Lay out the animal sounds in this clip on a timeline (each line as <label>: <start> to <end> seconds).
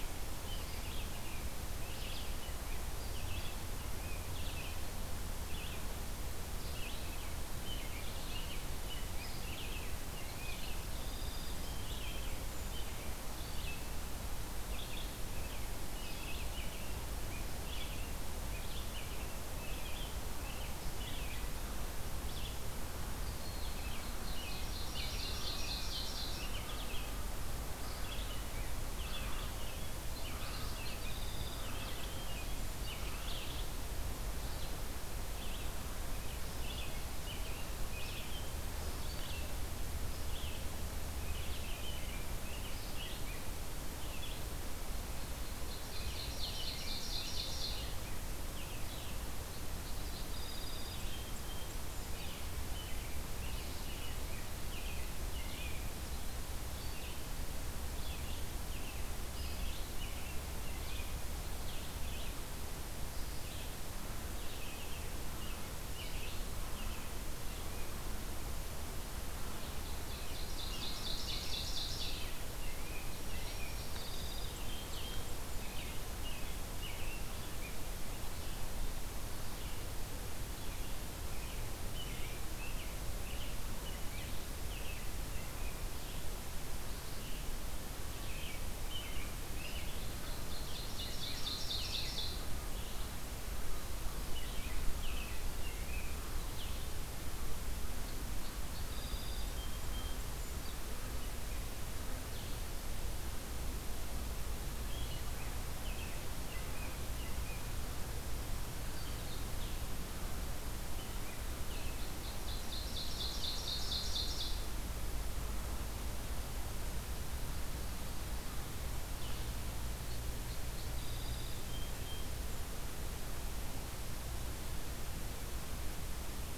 American Robin (Turdus migratorius): 0.0 to 4.2 seconds
Red-eyed Vireo (Vireo olivaceus): 0.0 to 55.9 seconds
American Robin (Turdus migratorius): 6.7 to 10.7 seconds
Song Sparrow (Melospiza melodia): 10.6 to 12.8 seconds
American Robin (Turdus migratorius): 15.4 to 21.5 seconds
American Robin (Turdus migratorius): 23.6 to 26.7 seconds
Ovenbird (Seiurus aurocapilla): 24.3 to 26.6 seconds
Song Sparrow (Melospiza melodia): 30.4 to 32.8 seconds
American Robin (Turdus migratorius): 40.7 to 43.5 seconds
Ovenbird (Seiurus aurocapilla): 45.8 to 48.1 seconds
Song Sparrow (Melospiza melodia): 49.4 to 52.4 seconds
Red-eyed Vireo (Vireo olivaceus): 56.5 to 68.3 seconds
American Robin (Turdus migratorius): 69.9 to 73.7 seconds
Ovenbird (Seiurus aurocapilla): 70.1 to 72.4 seconds
Song Sparrow (Melospiza melodia): 72.7 to 75.4 seconds
American Robin (Turdus migratorius): 74.7 to 78.1 seconds
Red-eyed Vireo (Vireo olivaceus): 78.1 to 97.1 seconds
American Robin (Turdus migratorius): 80.5 to 85.9 seconds
American Robin (Turdus migratorius): 88.1 to 90.2 seconds
Ovenbird (Seiurus aurocapilla): 90.4 to 92.7 seconds
American Robin (Turdus migratorius): 94.3 to 96.4 seconds
Song Sparrow (Melospiza melodia): 97.8 to 100.3 seconds
Blue-headed Vireo (Vireo solitarius): 102.1 to 102.9 seconds
American Robin (Turdus migratorius): 104.9 to 107.6 seconds
Blue-headed Vireo (Vireo solitarius): 108.8 to 109.8 seconds
American Robin (Turdus migratorius): 110.8 to 112.2 seconds
Ovenbird (Seiurus aurocapilla): 112.3 to 114.6 seconds
Song Sparrow (Melospiza melodia): 119.7 to 122.5 seconds